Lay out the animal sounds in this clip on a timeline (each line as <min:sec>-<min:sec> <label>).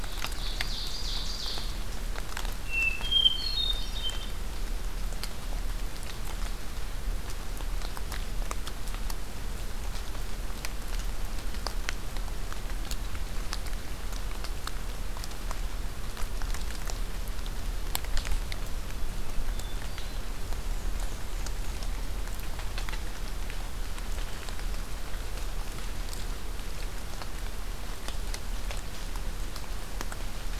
0:00.2-0:01.6 Ovenbird (Seiurus aurocapilla)
0:02.6-0:04.3 Hermit Thrush (Catharus guttatus)
0:19.2-0:20.3 Hermit Thrush (Catharus guttatus)
0:20.3-0:21.9 Black-and-white Warbler (Mniotilta varia)